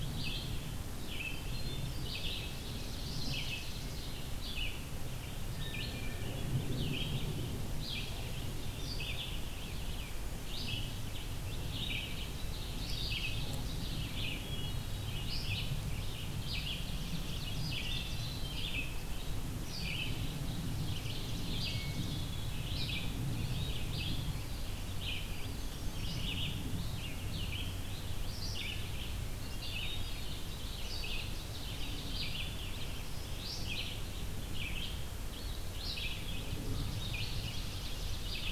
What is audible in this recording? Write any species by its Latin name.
Vireo olivaceus, Catharus guttatus, Seiurus aurocapilla